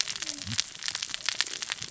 {"label": "biophony, cascading saw", "recorder": "SoundTrap 600 or HydroMoth"}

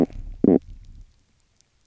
{"label": "biophony, stridulation", "recorder": "SoundTrap 300"}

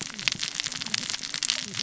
{"label": "biophony, cascading saw", "recorder": "SoundTrap 600 or HydroMoth"}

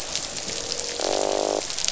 {"label": "biophony, croak", "recorder": "SoundTrap 500"}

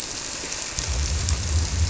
{"label": "biophony", "recorder": "SoundTrap 300"}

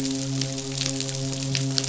{"label": "biophony, midshipman", "recorder": "SoundTrap 500"}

